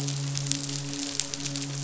{"label": "biophony, midshipman", "recorder": "SoundTrap 500"}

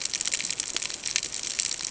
{"label": "ambient", "recorder": "HydroMoth"}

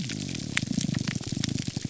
{"label": "biophony, grouper groan", "recorder": "SoundTrap 300"}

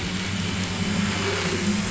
{"label": "anthrophony, boat engine", "recorder": "SoundTrap 500"}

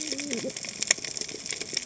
{"label": "biophony, cascading saw", "recorder": "HydroMoth"}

